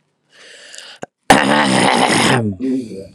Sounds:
Throat clearing